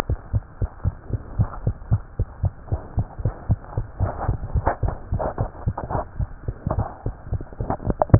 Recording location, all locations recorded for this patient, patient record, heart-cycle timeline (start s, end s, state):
tricuspid valve (TV)
aortic valve (AV)+pulmonary valve (PV)+tricuspid valve (TV)+mitral valve (MV)
#Age: Child
#Sex: Female
#Height: 86.0 cm
#Weight: 11.7 kg
#Pregnancy status: False
#Murmur: Absent
#Murmur locations: nan
#Most audible location: nan
#Systolic murmur timing: nan
#Systolic murmur shape: nan
#Systolic murmur grading: nan
#Systolic murmur pitch: nan
#Systolic murmur quality: nan
#Diastolic murmur timing: nan
#Diastolic murmur shape: nan
#Diastolic murmur grading: nan
#Diastolic murmur pitch: nan
#Diastolic murmur quality: nan
#Outcome: Abnormal
#Campaign: 2015 screening campaign
0.00	0.06	unannotated
0.06	0.18	S1
0.18	0.32	systole
0.32	0.46	S2
0.46	0.60	diastole
0.60	0.70	S1
0.70	0.83	systole
0.83	0.94	S2
0.94	1.10	diastole
1.10	1.22	S1
1.22	1.36	systole
1.36	1.50	S2
1.50	1.64	diastole
1.64	1.76	S1
1.76	1.90	systole
1.90	2.02	S2
2.02	2.18	diastole
2.18	2.28	S1
2.28	2.42	systole
2.42	2.54	S2
2.54	2.70	diastole
2.70	2.80	S1
2.80	2.94	systole
2.94	3.08	S2
3.08	3.20	diastole
3.20	3.34	S1
3.34	3.48	systole
3.48	3.60	S2
3.60	3.74	diastole
3.74	3.88	S1
3.88	8.19	unannotated